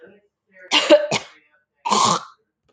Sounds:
Throat clearing